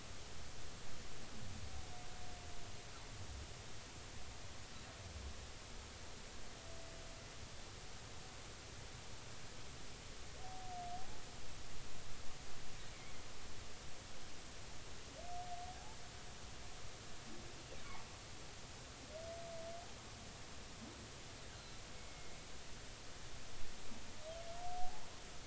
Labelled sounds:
10.9	11.2	humpback whale, 0.80 to 0.90 kHz
21.5	22.4	humpback whale, 2.1 to 4.3 kHz
24.7	25.0	humpback whale, 0.80 to 0.90 kHz

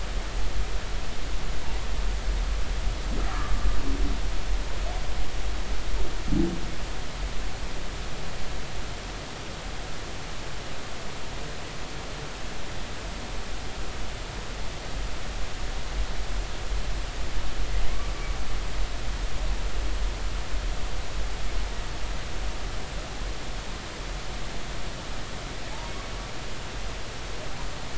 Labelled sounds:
1.6	1.9	humpback whale, 0.83 to 1.1 kHz
3.3	3.7	humpback whale, 0.99 to 1.4 kHz

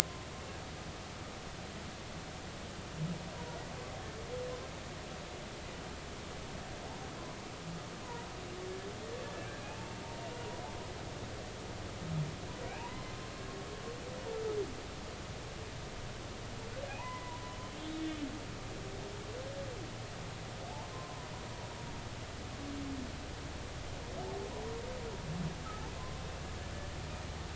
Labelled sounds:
10.2	10.5	humpback whale, 2.8 to 2.9 kHz
12.7	13.2	humpback whale, 0.80 to 2.6 kHz
16.9	18.2	humpback whale, 0.80 to 3.5 kHz
20.9	21.2	humpback whale, 0.93 to 1.1 kHz

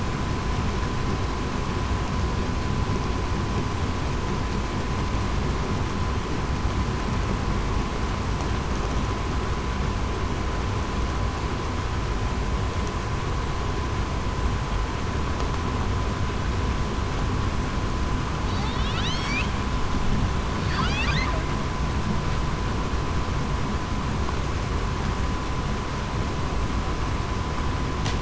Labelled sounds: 19.0	19.4	humpback whale, 3.3 to 4.9 kHz

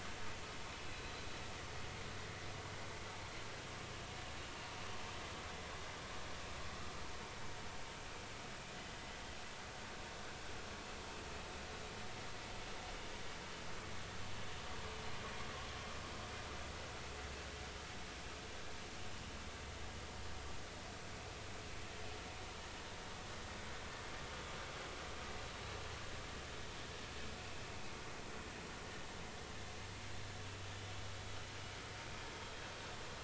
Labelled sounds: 0.9	1.2	vessel noise, 3.9 to 4.1 kHz

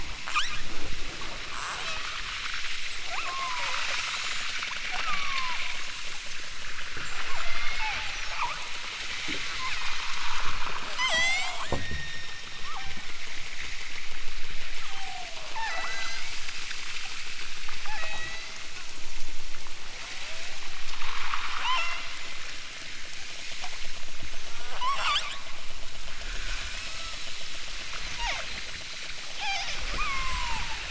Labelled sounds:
0.2	0.6	killer whale, southern Alaska resident, 0.41 to 8.0 kHz
1.5	2.3	killer whale, southern Alaska resident, 0.46 to 8.0 kHz
3.1	4.0	killer whale, southern Alaska resident, 0.32 to 1.8 kHz
4.9	5.6	killer whale, southern Alaska resident, 0.37 to 2.1 kHz
7.3	8.6	killer whale, southern Alaska resident, 0.32 to 5.9 kHz
9.5	10.0	killer whale, southern Alaska resident, 0.73 to 2.8 kHz
10.9	13.3	killer whale, southern Alaska resident, 0.23 to 8.0 kHz
14.8	16.3	killer whale, southern Alaska resident, 0.18 to 8.0 kHz
17.8	18.6	killer whale, southern Alaska resident, 0.23 to 8.0 kHz
19.9	20.7	killer whale, southern Alaska resident, 0.23 to 2.0 kHz
21.5	22.1	killer whale, southern Alaska resident, 0.32 to 8.0 kHz
24.3	25.5	killer whale, southern Alaska resident, 0.32 to 8.0 kHz
26.7	27.1	killer whale, southern Alaska resident, 0.23 to 2.9 kHz
27.6	30.8	killer whale, southern Alaska resident, 0.18 to 8.0 kHz

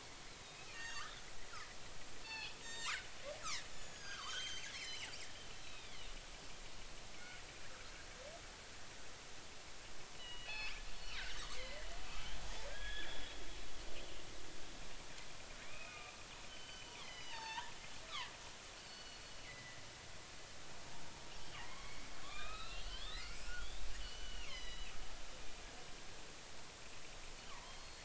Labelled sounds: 0.3	1.2	killer whale, northern resident, G clan, 1.0 to 7.5 kHz
2.2	2.9	killer whale, northern resident, G clan, 1.6 to 7.6 kHz
3.7	5.1	killer whale, northern resident, G clan, 0.96 to 7.1 kHz
5.5	6.0	killer whale, northern resident, G clan, 2.0 to 4.0 kHz
10.2	10.7	killer whale, northern resident, G clan, 2.1 to 4.6 kHz
11.5	11.9	killer whale, northern resident, G clan, 1.7 to 2.3 kHz
12.7	13.3	killer whale, northern resident, G clan, 1.5 to 3.7 kHz
15.6	18.3	killer whale, northern resident, G clan, 0.83 to 6.1 kHz
18.9	19.8	killer whale, northern resident, G clan, 1.9 to 4.5 kHz
21.6	24.9	killer whale, northern resident, G clan, 0.80 to 6.1 kHz
27.5	28.0	killer whale, northern resident, G clan, 0.83 to 4.4 kHz

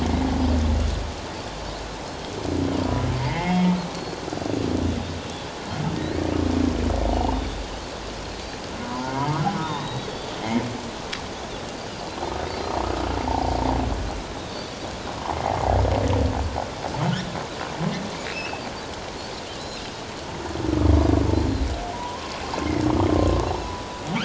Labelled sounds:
3.2	3.7	humpback whale, 1.8 to 3.3 kHz
4.0	4.2	Pacific white-sided dolphin, 4.2 to 4.5 kHz
7.1	7.6	Pacific white-sided dolphin, 2.7 to 3.8 kHz
8.8	9.8	humpback whale, 0.81 to 1.1 kHz
9.6	10.3	Pacific white-sided dolphin, 3.3 to 4.7 kHz
14.4	14.7	Pacific white-sided dolphin, 3.4 to 3.8 kHz
18.3	18.6	Pacific white-sided dolphin, 2.3 to 2.9 kHz
21.3	21.7	Pacific white-sided dolphin, 3.8 to 4.2 kHz
21.9	22.4	humpback whale, 0.81 to 1.1 kHz
23.4	23.7	Pacific white-sided dolphin, 3.8 to 4.1 kHz

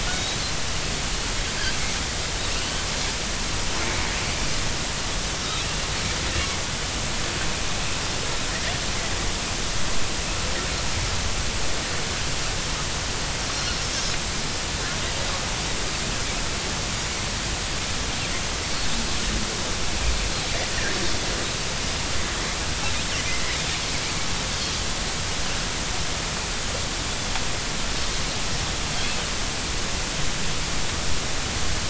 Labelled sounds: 0.1	0.4	Pacific white-sided dolphin, 3.6 to 3.9 kHz
2.5	2.8	Pacific white-sided dolphin, 2.6 to 3.2 kHz
5.4	5.7	Pacific white-sided dolphin, 3.5 to 4.1 kHz

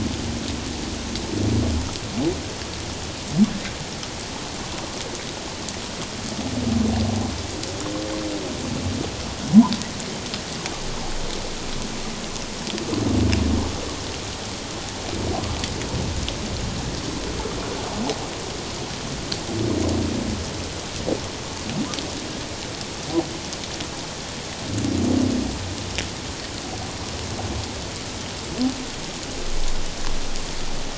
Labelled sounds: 1.0	1.3	humpback whale, 3.8 to 4.2 kHz

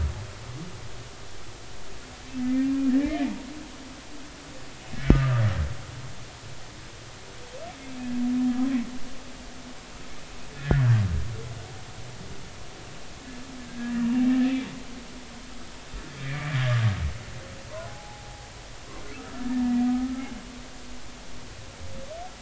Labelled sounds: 2.4	3.3	humpback whale, 1.6 to 2.5 kHz
5.0	5.4	humpback whale, 1.2 to 1.5 kHz
10.6	10.9	humpback whale, 1.4 to 2.0 kHz
13.7	14.1	humpback whale, 1.6 to 2.9 kHz
16.2	16.8	humpback whale, 1.6 to 2.5 kHz
17.9	18.5	humpback whale, 0.80 to 0.93 kHz
19.1	20.3	humpback whale, 1.2 to 1.9 kHz

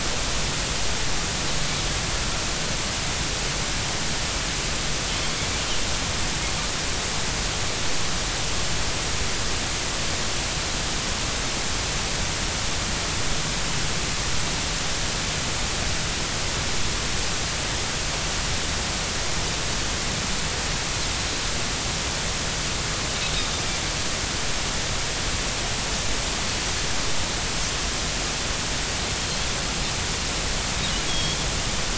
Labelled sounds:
31.1	31.4	Pacific white-sided dolphin, 3.2 to 3.5 kHz

